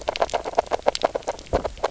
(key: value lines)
label: biophony, grazing
recorder: SoundTrap 300